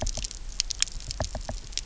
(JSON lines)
{"label": "biophony, knock", "recorder": "SoundTrap 300"}